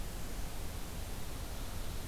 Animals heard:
forest ambience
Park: Marsh-Billings-Rockefeller National Historical Park